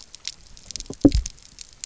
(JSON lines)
{"label": "biophony, double pulse", "recorder": "SoundTrap 300"}